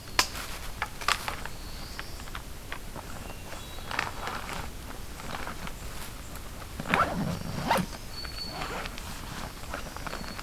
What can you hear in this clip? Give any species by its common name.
Black-throated Blue Warbler, Hermit Thrush, Black-throated Green Warbler